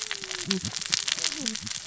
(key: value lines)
label: biophony, cascading saw
recorder: SoundTrap 600 or HydroMoth